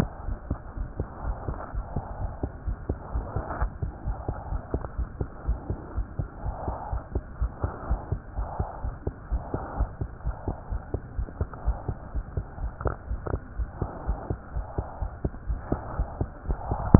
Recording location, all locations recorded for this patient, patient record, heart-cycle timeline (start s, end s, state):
aortic valve (AV)
aortic valve (AV)+pulmonary valve (PV)+tricuspid valve (TV)+mitral valve (MV)
#Age: Child
#Sex: Female
#Height: 120.0 cm
#Weight: 24.8 kg
#Pregnancy status: False
#Murmur: Absent
#Murmur locations: nan
#Most audible location: nan
#Systolic murmur timing: nan
#Systolic murmur shape: nan
#Systolic murmur grading: nan
#Systolic murmur pitch: nan
#Systolic murmur quality: nan
#Diastolic murmur timing: nan
#Diastolic murmur shape: nan
#Diastolic murmur grading: nan
#Diastolic murmur pitch: nan
#Diastolic murmur quality: nan
#Outcome: Normal
#Campaign: 2015 screening campaign
0.00	0.74	unannotated
0.74	0.87	S1
0.87	0.97	systole
0.97	1.08	S2
1.08	1.24	diastole
1.24	1.36	S1
1.36	1.46	systole
1.46	1.58	S2
1.58	1.72	diastole
1.72	1.84	S1
1.84	1.94	systole
1.94	2.04	S2
2.04	2.17	diastole
2.17	2.30	S1
2.30	2.41	systole
2.41	2.52	S2
2.52	2.64	diastole
2.64	2.76	S1
2.76	2.87	systole
2.87	2.98	S2
2.98	3.12	diastole
3.12	3.22	S1
3.22	3.34	systole
3.34	3.42	S2
3.42	3.58	diastole
3.58	3.69	S1
3.69	3.80	systole
3.80	3.92	S2
3.92	4.04	diastole
4.04	4.15	S1
4.15	4.26	systole
4.26	4.36	S2
4.36	4.50	diastole
4.50	4.62	S1
4.62	4.72	systole
4.72	4.80	S2
4.80	4.95	diastole
4.95	5.08	S1
5.08	5.18	systole
5.18	5.28	S2
5.28	5.44	diastole
5.44	5.56	S1
5.56	5.67	systole
5.67	5.78	S2
5.78	5.94	diastole
5.94	6.04	S1
6.04	6.16	systole
6.16	6.28	S2
6.28	6.42	diastole
6.42	6.52	S1
6.52	6.65	systole
6.65	6.73	S2
6.73	6.90	diastole
6.90	7.01	S1
7.01	7.13	systole
7.13	7.24	S2
7.24	7.38	diastole
7.38	7.49	S1
7.49	7.61	systole
7.61	7.72	S2
7.72	7.87	diastole
7.87	7.97	S1
7.97	8.10	systole
8.10	8.17	S2
8.17	8.35	diastole
8.35	8.46	S1
8.46	8.58	systole
8.58	8.66	S2
8.66	8.81	diastole
8.81	8.94	S1
8.94	9.04	systole
9.04	9.14	S2
9.14	9.29	diastole
9.29	9.41	S1
9.41	9.51	systole
9.51	9.59	S2
9.59	9.76	diastole
9.76	9.88	S1
9.88	9.98	systole
9.98	10.08	S2
10.08	10.23	diastole
10.23	10.34	S1
10.34	10.45	systole
10.45	10.55	S2
10.55	10.69	diastole
10.69	10.80	S1
10.80	10.91	systole
10.91	11.00	S2
11.00	11.16	diastole
11.16	11.28	S1
11.28	11.38	systole
11.38	11.48	S2
11.48	11.64	diastole
11.64	11.75	S1
11.75	11.86	systole
11.86	11.96	S2
11.96	12.12	diastole
12.12	12.22	S1
12.22	12.33	systole
12.33	12.46	S2
12.46	12.58	diastole
12.58	12.72	S1
12.72	16.99	unannotated